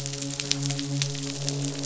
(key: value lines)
label: biophony, midshipman
recorder: SoundTrap 500

label: biophony, croak
recorder: SoundTrap 500